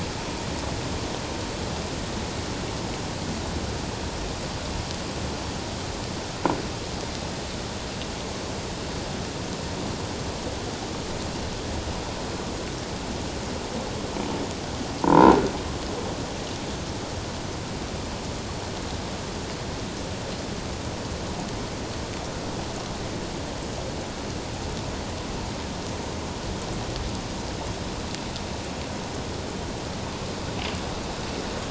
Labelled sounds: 15.0	15.4	croaking sound likely from a nearby submerged object, 0.84 to 1.5 kHz

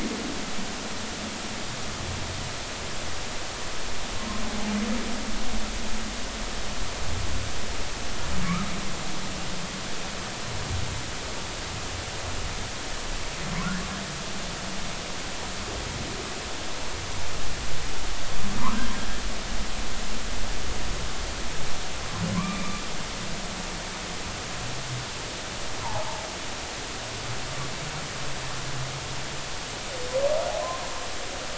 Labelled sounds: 22.3	22.7	humpback whale, 0.96 to 2.5 kHz
25.8	26.3	humpback whale, 0.80 to 1.1 kHz

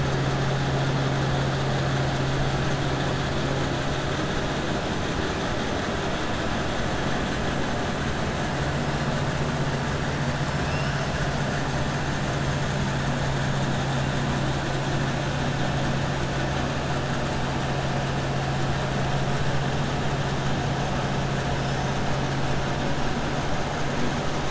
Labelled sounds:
10.4	11.0	killer whale, 4.6 to 5.8 kHz

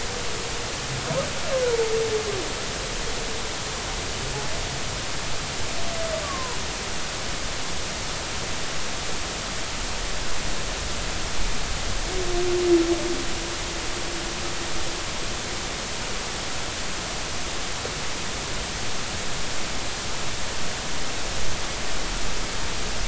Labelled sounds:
6.2	6.6	humpback whale, 0.86 to 1.2 kHz

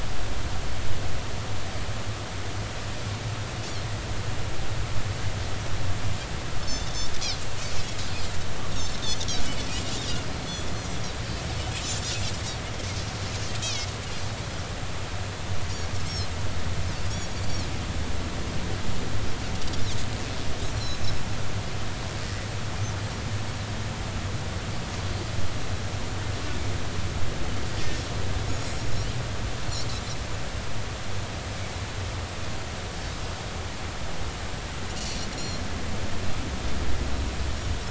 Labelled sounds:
8.7	9.0	Pacific white-sided dolphin, 5.3 to 5.7 kHz
13.6	13.9	Pacific white-sided dolphin, 2.1 to 6.6 kHz
16.1	16.4	Pacific white-sided dolphin, 5.0 to 5.6 kHz
17.4	17.7	Pacific white-sided dolphin, 4.0 to 4.7 kHz
20.7	21.0	Pacific white-sided dolphin, 3.9 to 5.7 kHz
28.5	28.8	Pacific white-sided dolphin, 6.5 to 7.0 kHz
35.0	35.6	Pacific white-sided dolphin, 4.0 to 5.9 kHz

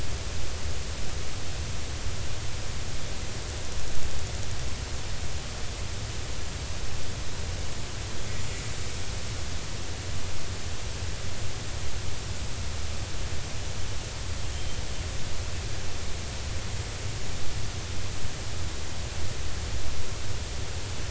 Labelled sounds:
14.5	14.8	killer whale, Bigg's (transient), 3.0 to 3.2 kHz

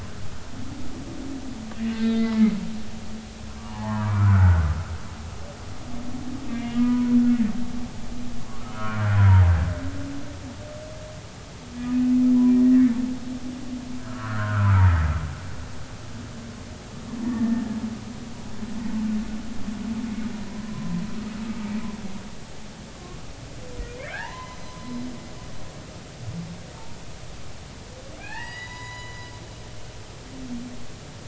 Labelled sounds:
1.9	2.4	humpback whale, 1.1 to 3.6 kHz
3.7	4.7	humpback whale, 0.80 to 1.7 kHz
6.5	7.2	humpback whale, 0.93 to 2.9 kHz
8.7	9.4	humpback whale, 0.86 to 3.1 kHz
12.6	12.9	humpback whale, 1.7 to 2.0 kHz
14.0	14.8	humpback whale, 0.96 to 1.7 kHz
17.2	17.6	humpback whale, 1.7 to 1.9 kHz
20.5	21.0	humpback whale, 0.96 to 1.1 kHz
22.9	23.2	humpback whale, 1.0 to 1.2 kHz
24.1	25.0	humpback whale, 0.80 to 6.2 kHz
28.2	29.3	humpback whale, 0.80 to 7.0 kHz

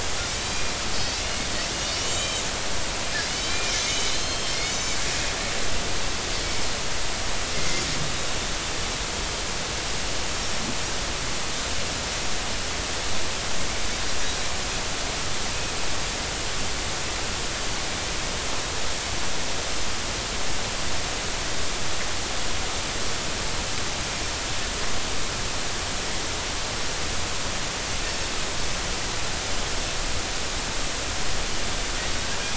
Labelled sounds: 0.9	1.2	Pacific white-sided dolphin, 4.4 to 5.4 kHz
1.9	2.4	Pacific white-sided dolphin, 2.8 to 7.0 kHz
3.2	5.0	Pacific white-sided dolphin, 2.0 to 6.9 kHz
7.6	7.8	Pacific white-sided dolphin, 2.0 to 2.1 kHz
10.3	10.6	Pacific white-sided dolphin, 5.4 to 5.6 kHz

